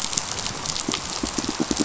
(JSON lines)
{"label": "biophony, pulse", "recorder": "SoundTrap 500"}